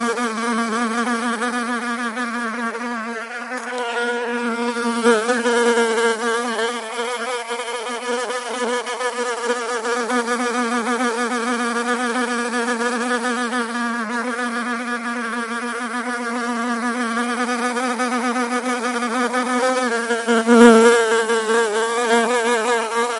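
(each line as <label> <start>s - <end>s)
An insect hums while flying around. 0.0s - 23.2s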